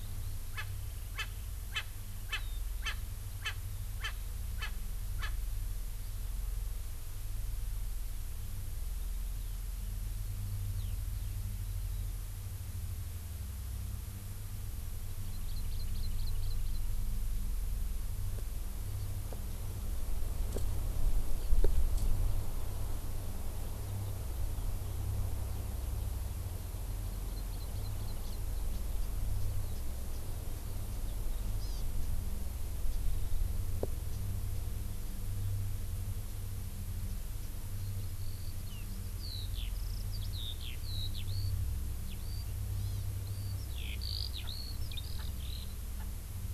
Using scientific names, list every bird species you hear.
Pternistis erckelii, Alauda arvensis, Chlorodrepanis virens